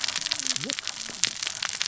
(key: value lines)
label: biophony, cascading saw
recorder: SoundTrap 600 or HydroMoth